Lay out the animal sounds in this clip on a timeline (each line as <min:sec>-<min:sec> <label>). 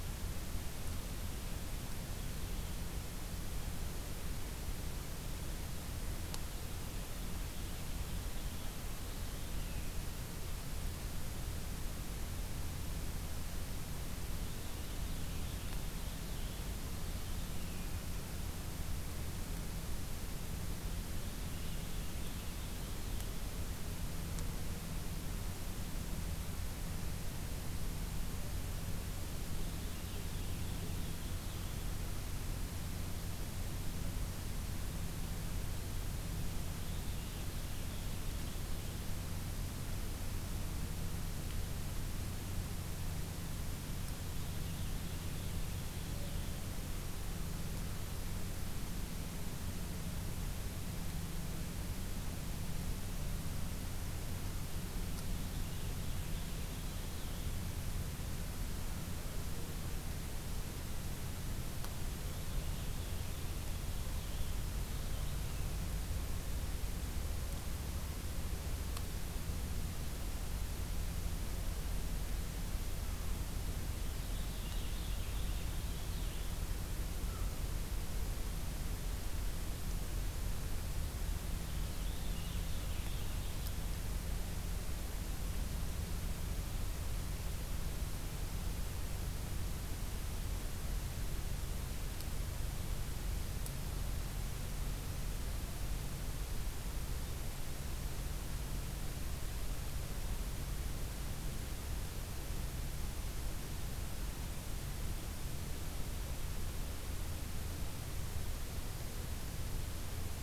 0:06.6-0:10.0 Purple Finch (Haemorhous purpureus)
0:14.2-0:17.9 Purple Finch (Haemorhous purpureus)
0:21.1-0:23.3 Purple Finch (Haemorhous purpureus)
0:29.5-0:31.8 Purple Finch (Haemorhous purpureus)
0:36.6-0:39.1 Purple Finch (Haemorhous purpureus)
0:43.9-0:46.6 Purple Finch (Haemorhous purpureus)
0:55.0-0:57.5 Purple Finch (Haemorhous purpureus)
1:01.9-1:05.5 Purple Finch (Haemorhous purpureus)
1:14.0-1:16.7 Purple Finch (Haemorhous purpureus)
1:17.2-1:17.6 American Crow (Corvus brachyrhynchos)
1:21.5-1:23.8 Purple Finch (Haemorhous purpureus)